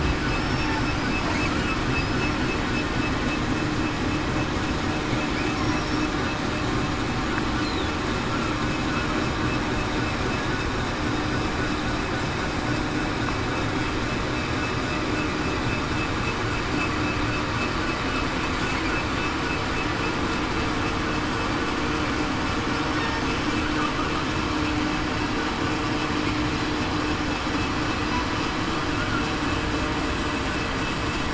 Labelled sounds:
0.4	0.8	killer whale, southern resident, 5.3 to 5.5 kHz

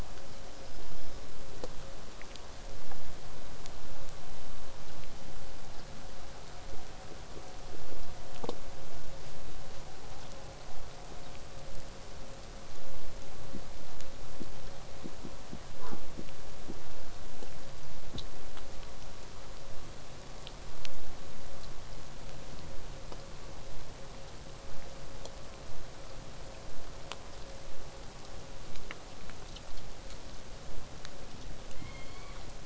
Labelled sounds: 0.2	1.4	killer whale, southern resident, whistle, 4.9 to 6.0 kHz
22.7	27.7	vessel noise, 0 to 8.0 kHz

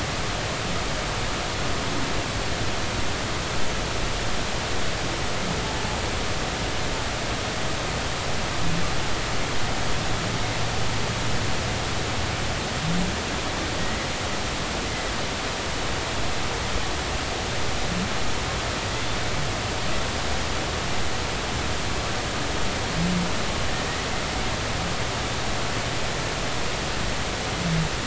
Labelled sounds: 10.3	10.6	humpback whale, 2.0 to 2.2 kHz
13.8	14.1	humpback whale, 1.9 to 2.0 kHz

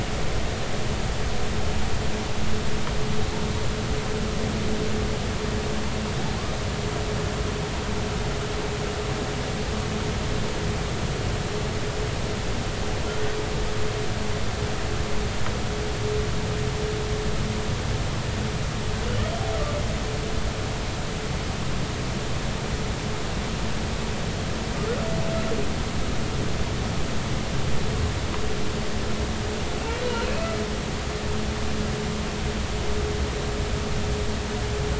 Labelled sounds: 30.2	30.5	humpback whale, 2.5 to 2.7 kHz

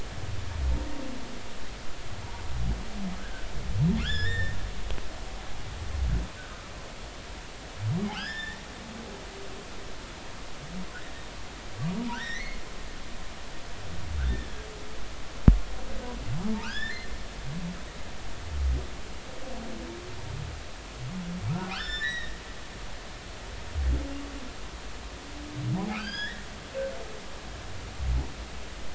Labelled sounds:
3.2	4.6	humpback whale, 1.3 to 5.5 kHz
8.1	8.6	humpback whale, 1.3 to 5.4 kHz
12.1	12.6	humpback whale, 1.3 to 4.1 kHz
14.2	14.6	humpback whale, 1.7 to 3.7 kHz
16.6	17.1	humpback whale, 1.2 to 5.5 kHz
21.7	22.4	humpback whale, 1.2 to 5.4 kHz
25.9	26.5	humpback whale, 1.2 to 5.1 kHz

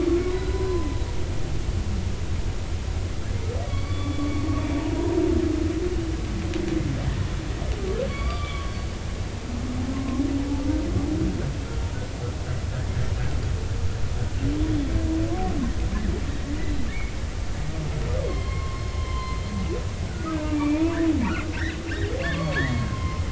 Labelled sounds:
0.3	1.0	humpback whale, 0.93 to 4.1 kHz
3.6	4.2	humpback whale, 1.0 to 4.6 kHz
8.1	8.9	humpback whale, 1.1 to 4.7 kHz
9.9	10.2	humpback whale, 0.99 to 1.1 kHz
18.2	19.7	humpback whale, 0.96 to 4.2 kHz
20.3	21.0	humpback whale, 0.86 to 2.7 kHz
22.2	23.2	humpback whale, 0.99 to 4.6 kHz

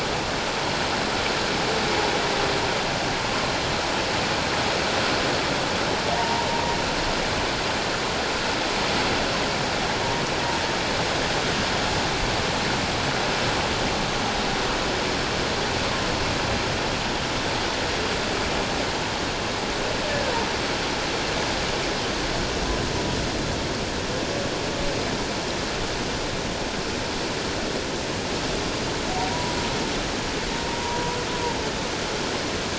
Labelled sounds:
6.2	6.5	humpback whale, 0.88 to 1.0 kHz

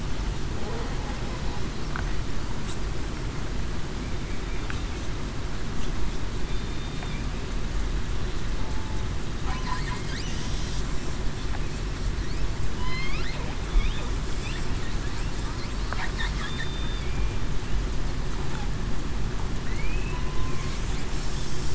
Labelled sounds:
6.5	7.1	killer whale, southern resident, 3.5 to 3.7 kHz
12.8	13.2	killer whale, southern resident, 2.9 to 3.6 kHz
16.4	17.1	killer whale, southern resident, 3.3 to 3.6 kHz

